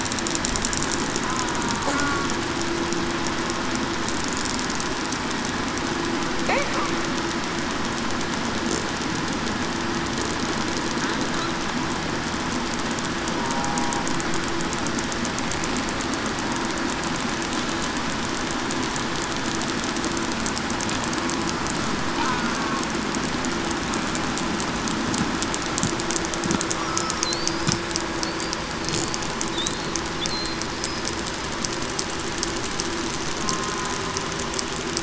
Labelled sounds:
13.5	13.9	killer whale, southern resident, 0.80 to 0.84 kHz
26.9	27.2	killer whale, southern resident, 1.2 to 1.3 kHz

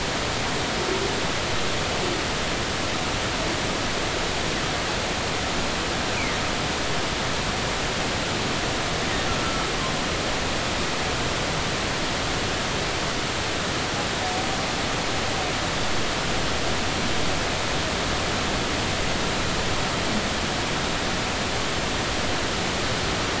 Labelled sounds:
9.4	9.7	humpback whale, 1.3 to 1.4 kHz

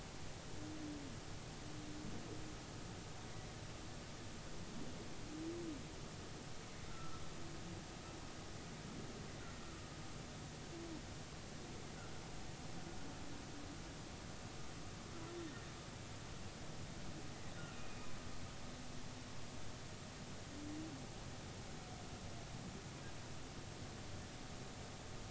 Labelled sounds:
6.9	7.2	humpback whale, 1.2 to 1.4 kHz
17.7	18.1	humpback whale, 2.4 to 2.6 kHz

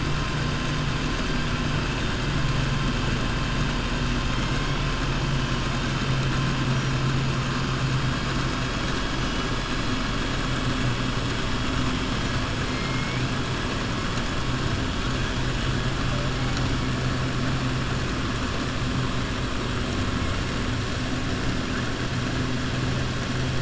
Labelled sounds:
12.7	13.2	killer whale, southern resident, 1.8 to 2.5 kHz

